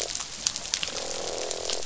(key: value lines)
label: biophony, croak
recorder: SoundTrap 500